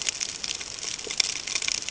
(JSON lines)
{"label": "ambient", "recorder": "HydroMoth"}